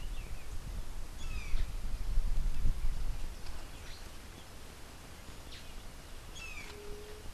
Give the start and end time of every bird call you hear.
[1.00, 1.80] Brown Jay (Psilorhinus morio)
[3.30, 4.20] Black-headed Saltator (Saltator atriceps)
[5.40, 5.80] Black-headed Saltator (Saltator atriceps)
[6.20, 7.00] Brown Jay (Psilorhinus morio)
[6.60, 7.30] White-tipped Dove (Leptotila verreauxi)

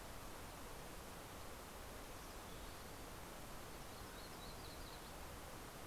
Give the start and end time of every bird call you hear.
[3.60, 5.80] Yellow-rumped Warbler (Setophaga coronata)

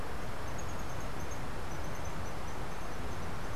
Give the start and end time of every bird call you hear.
[0.00, 3.55] unidentified bird

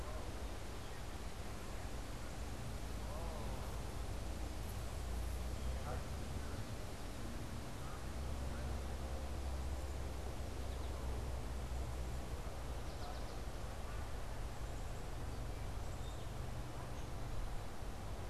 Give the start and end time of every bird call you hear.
[8.94, 13.74] American Goldfinch (Spinus tristis)
[15.64, 16.84] Black-capped Chickadee (Poecile atricapillus)

